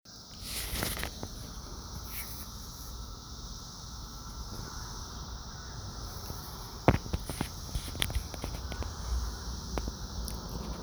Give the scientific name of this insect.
Magicicada septendecim